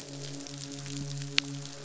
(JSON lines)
{"label": "biophony, midshipman", "recorder": "SoundTrap 500"}
{"label": "biophony, croak", "recorder": "SoundTrap 500"}